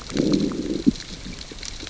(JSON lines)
{"label": "biophony, growl", "recorder": "SoundTrap 600 or HydroMoth"}